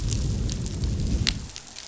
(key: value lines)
label: biophony, growl
recorder: SoundTrap 500